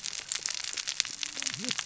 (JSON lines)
{"label": "biophony, cascading saw", "recorder": "SoundTrap 600 or HydroMoth"}